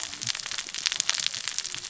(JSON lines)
{"label": "biophony, cascading saw", "recorder": "SoundTrap 600 or HydroMoth"}